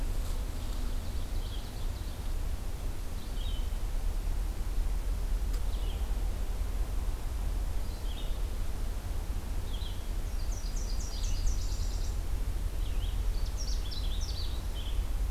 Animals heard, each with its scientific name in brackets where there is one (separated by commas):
Canada Warbler (Cardellina canadensis), Nashville Warbler (Leiothlypis ruficapilla), Red-eyed Vireo (Vireo olivaceus)